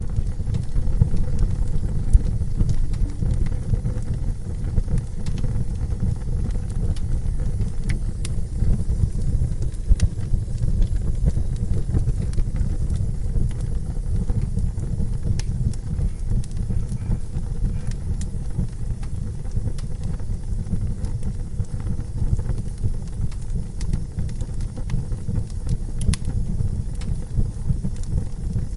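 Flames crackling continuously inside a fireplace. 0.0 - 28.8

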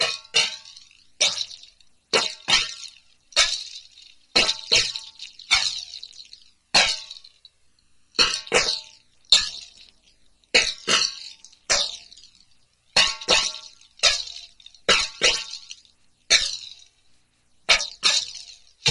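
Someone is repeatedly playing a small DIY drum in rhythm. 0.0 - 18.9

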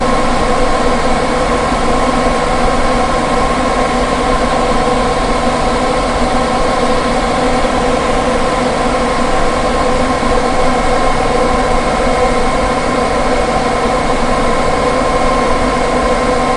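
An engine is humming steadily. 0.0 - 16.6

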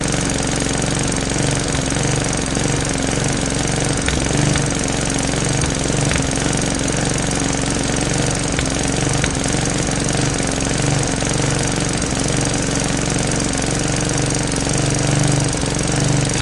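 The engine of a lawnmower is running with a constant thumping sound. 0.0 - 16.4

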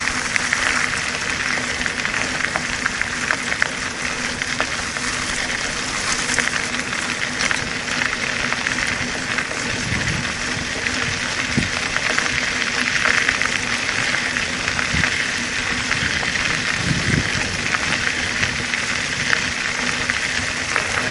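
Tires crunch on gravel. 0.0 - 21.1

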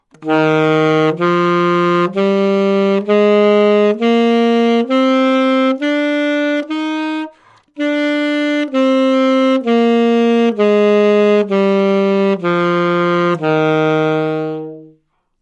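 A saxophone plays a C major scale ascending and descending. 0.2 - 15.2

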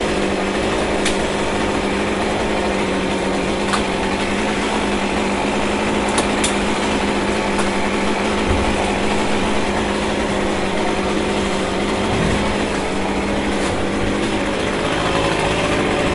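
A chainsaw running with a monotonic sound. 0.0 - 16.1
A sharp clap. 1.0 - 1.2
A sharp clap. 3.7 - 3.9
Sharp clapping sounds. 6.1 - 6.5
A sharp clap. 7.5 - 7.8

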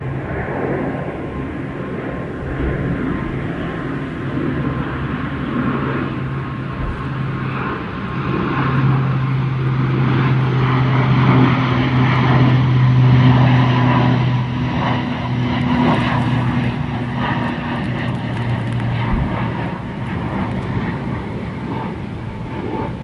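A propeller plane flies overhead with an echo. 0.0 - 23.0

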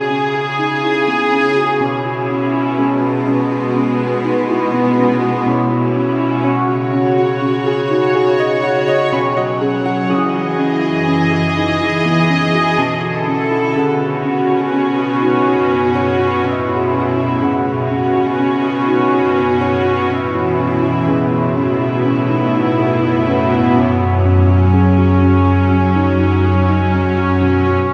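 Classical music played rhythmically on violins. 0.0 - 27.9
Classical music is played quietly on a piano. 0.0 - 27.9

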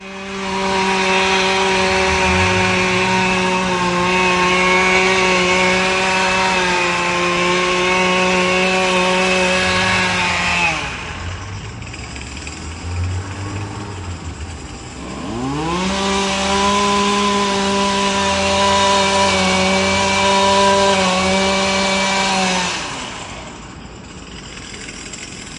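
A mower is operating loudly in a steady pattern outdoors. 0.0 - 10.0
A mower gradually slows down outdoors. 10.2 - 11.1
A mower gradually idles while a car passes by loudly outdoors. 11.3 - 15.3
A mower is working loudly in a steady pattern outdoors. 15.3 - 22.7
A mower slows down gradually and fades away. 22.9 - 25.6

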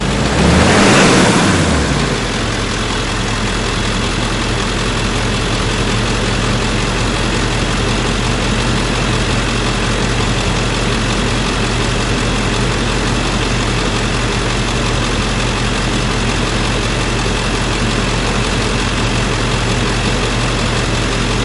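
A very loud motor starts. 0.0 - 2.6
An engine runs loudly and continuously outdoors. 0.0 - 21.4
Wind blowing outdoors with voices in the background. 0.0 - 21.4

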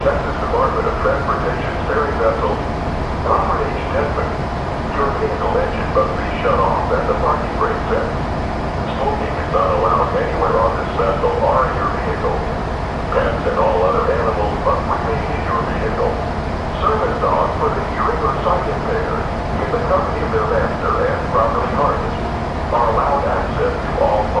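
A man is making an announcement through a speaker on a ship dock. 0.0 - 24.4
The sound of a ferry engine in the distance. 0.0 - 24.4

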